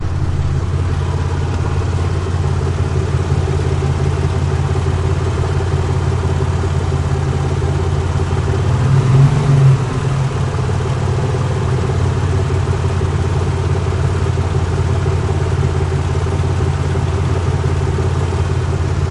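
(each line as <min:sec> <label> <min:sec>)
0:00.0 An engine is running normally without revving. 0:19.1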